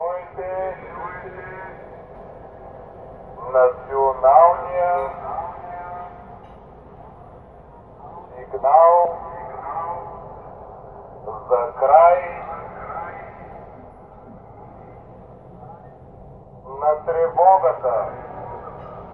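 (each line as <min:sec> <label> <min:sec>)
0:00.0 A loud announcement fading and echoing outside on the street. 0:02.0
0:03.4 A loud announcement fades and echoes outdoors. 0:06.4
0:08.3 A loud announcement fading and echoing outside on the street. 0:10.2
0:11.2 A loud announcement fading and echoing outside on the street. 0:13.6
0:16.6 A loud announcement fading and echoing outside on the street. 0:19.1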